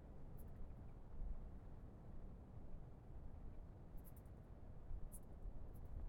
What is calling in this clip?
Caedicia simplex, an orthopteran